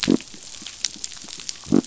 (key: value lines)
label: biophony
recorder: SoundTrap 500